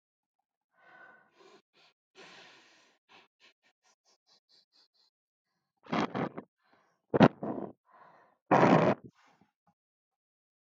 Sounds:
Sniff